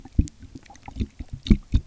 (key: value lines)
label: geophony, waves
recorder: SoundTrap 300